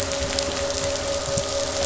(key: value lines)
label: anthrophony, boat engine
recorder: SoundTrap 500